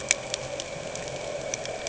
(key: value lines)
label: anthrophony, boat engine
recorder: HydroMoth